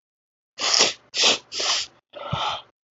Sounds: Sniff